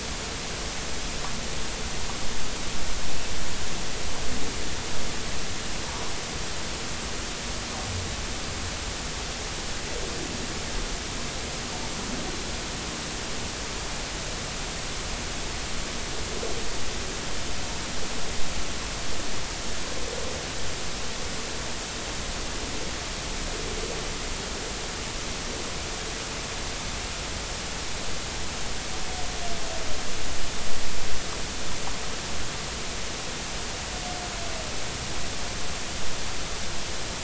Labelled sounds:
5.8	6.1	humpback whale, 0.83 to 1.1 kHz

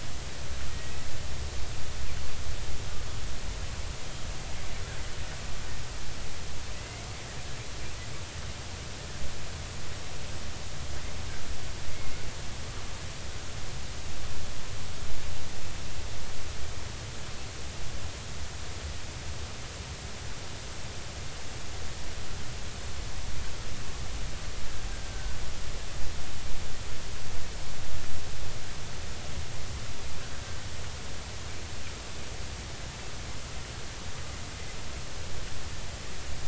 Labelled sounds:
0.7	1.0	killer whale, Bigg's (transient), 1.9 to 2.0 kHz
6.7	7.1	killer whale, Bigg's (transient), 1.9 to 2.8 kHz
11.9	12.2	killer whale, Bigg's (transient), 2.1 to 2.2 kHz
25.1	25.4	killer whale, Bigg's (transient), 1.5 to 1.6 kHz
30.4	30.7	killer whale, Bigg's (transient), 1.5 to 1.6 kHz

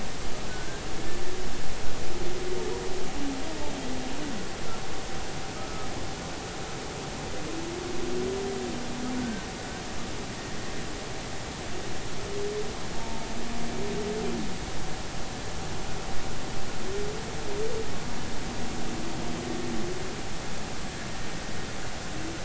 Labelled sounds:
0.5	0.8	humpback whale, 1.4 to 1.6 kHz
5.6	5.9	humpback whale, 1.2 to 1.3 kHz
12.9	13.2	humpback whale, 0.86 to 0.96 kHz

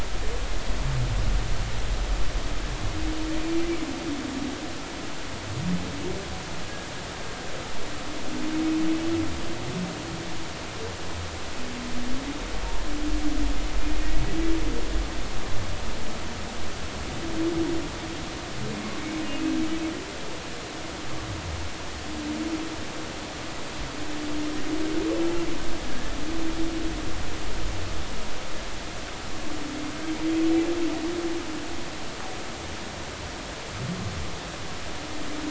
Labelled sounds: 19.2	19.5	humpback whale, 2.5 to 2.6 kHz
25.9	26.2	humpback whale, 1.6 to 1.8 kHz

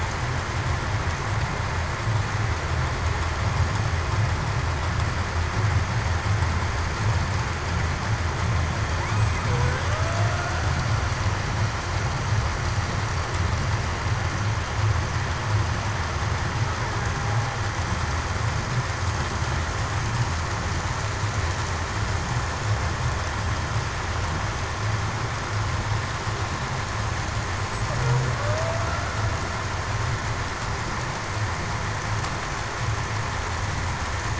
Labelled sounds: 9.5	10.4	killer whale, Bigg's (transient), 0.47 to 0.73 kHz
28.4	28.9	killer whale, Bigg's (transient), 0.54 to 0.73 kHz

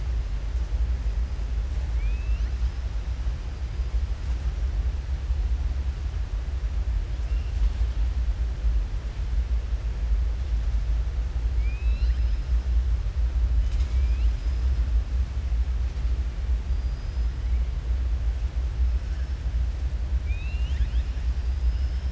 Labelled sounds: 11.5	12.4	killer whale, southern resident, 1.5 to 5.6 kHz
16.7	17.2	killer whale, southern resident, 4.8 to 5.1 kHz
20.1	21.1	killer whale, southern resident, 1.7 to 7.1 kHz

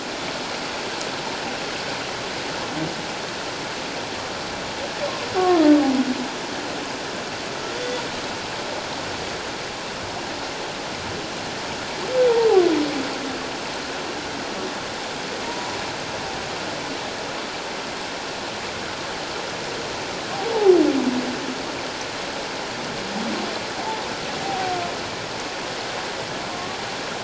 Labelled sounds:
5.4	5.6	humpback whale, 1.0 to 1.2 kHz
15.4	15.7	humpback whale, 0.91 to 1.0 kHz
24.4	24.8	humpback whale, 0.78 to 0.84 kHz
26.5	26.8	humpback whale, 1.0 to 1.2 kHz

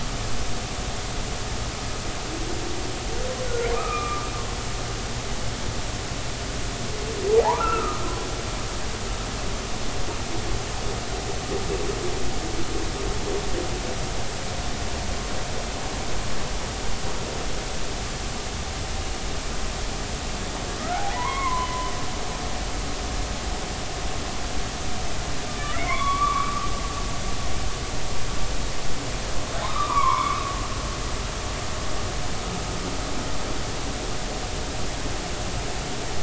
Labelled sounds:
3.7	4.3	humpback whale, 1.0 to 2.6 kHz
7.4	8.0	humpback whale, 0.80 to 1.5 kHz
21.2	21.9	humpback whale, 0.93 to 2.2 kHz
25.5	26.7	humpback whale, 0.99 to 3.5 kHz
29.6	30.4	humpback whale, 0.80 to 2.4 kHz

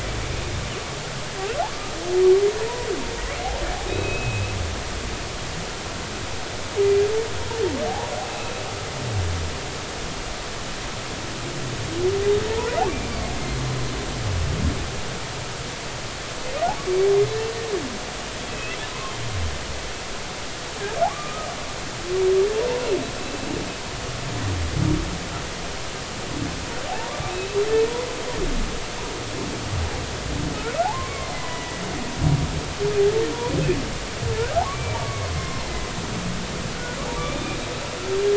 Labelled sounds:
3.9	4.5	humpback whale, 2.4 to 3.9 kHz
8.3	8.5	humpback whale, 2.5 to 2.7 kHz
12.5	12.8	humpback whale, 0.83 to 1.0 kHz
18.5	18.8	humpback whale, 2.5 to 2.8 kHz
21.1	21.5	humpback whale, 1.1 to 1.3 kHz
26.9	27.2	humpback whale, 0.80 to 1.2 kHz
30.8	31.8	humpback whale, 0.80 to 2.3 kHz
34.7	35.6	humpback whale, 0.93 to 2.4 kHz
37.2	37.6	humpback whale, 2.2 to 2.5 kHz

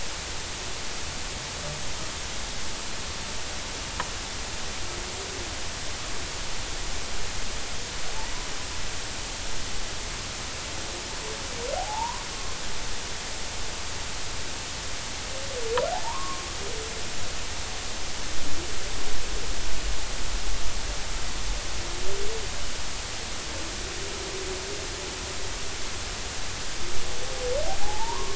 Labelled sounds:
11.8	12.2	humpback whale, 0.80 to 1.2 kHz
15.9	16.4	humpback whale, 0.80 to 1.3 kHz
27.8	28.3	humpback whale, 0.80 to 1.2 kHz

